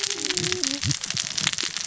{"label": "biophony, cascading saw", "recorder": "SoundTrap 600 or HydroMoth"}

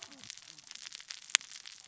{"label": "biophony, cascading saw", "recorder": "SoundTrap 600 or HydroMoth"}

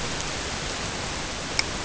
{"label": "ambient", "recorder": "HydroMoth"}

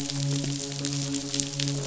{"label": "biophony, midshipman", "recorder": "SoundTrap 500"}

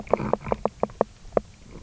{"label": "biophony, knock croak", "recorder": "SoundTrap 300"}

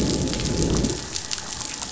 {"label": "biophony, growl", "recorder": "SoundTrap 500"}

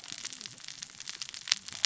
{"label": "biophony, cascading saw", "recorder": "SoundTrap 600 or HydroMoth"}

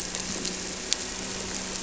{"label": "anthrophony, boat engine", "recorder": "SoundTrap 300"}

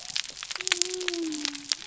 {"label": "biophony", "recorder": "SoundTrap 300"}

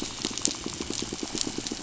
{"label": "anthrophony, boat engine", "recorder": "SoundTrap 500"}
{"label": "biophony, pulse", "recorder": "SoundTrap 500"}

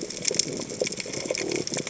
{"label": "biophony", "recorder": "HydroMoth"}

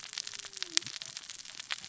{"label": "biophony, cascading saw", "recorder": "SoundTrap 600 or HydroMoth"}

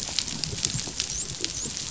{"label": "biophony, dolphin", "recorder": "SoundTrap 500"}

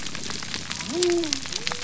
{"label": "biophony", "recorder": "SoundTrap 300"}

